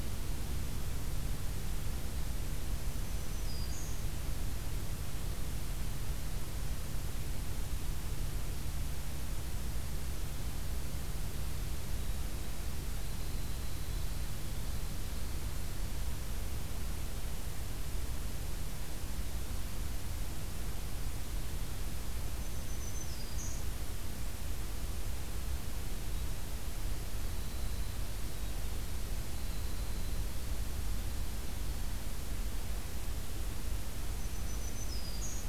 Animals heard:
Winter Wren (Troglodytes hiemalis), Black-throated Green Warbler (Setophaga virens)

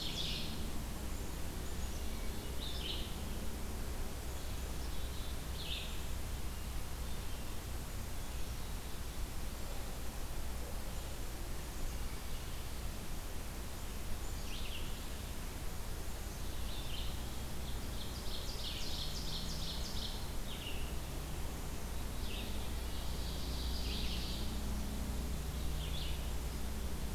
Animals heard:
Ovenbird (Seiurus aurocapilla), Black-capped Chickadee (Poecile atricapillus), Red-eyed Vireo (Vireo olivaceus)

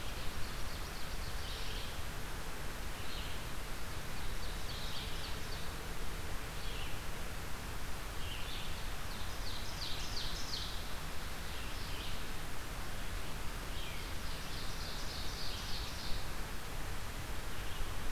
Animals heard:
Ovenbird (Seiurus aurocapilla), Red-eyed Vireo (Vireo olivaceus)

